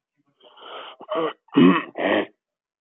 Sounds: Throat clearing